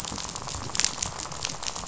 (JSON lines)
{"label": "biophony, rattle", "recorder": "SoundTrap 500"}